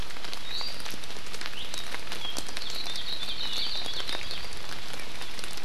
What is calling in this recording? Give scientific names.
Drepanis coccinea, Loxops coccineus